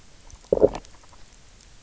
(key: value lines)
label: biophony, low growl
recorder: SoundTrap 300